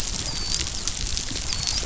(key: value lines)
label: biophony, dolphin
recorder: SoundTrap 500